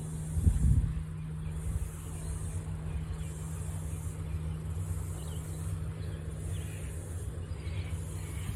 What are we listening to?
Atrapsalta corticina, a cicada